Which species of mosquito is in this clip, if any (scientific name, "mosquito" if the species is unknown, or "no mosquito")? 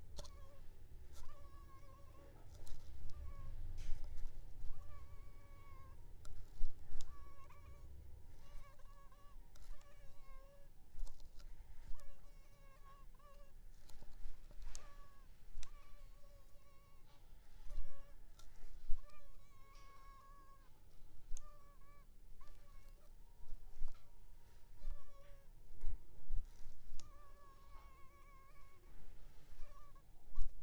Anopheles arabiensis